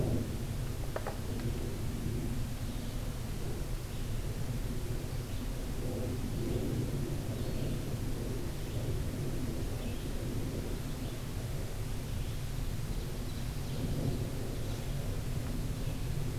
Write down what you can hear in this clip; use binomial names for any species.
Vireo olivaceus